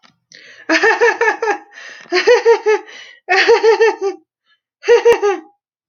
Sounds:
Laughter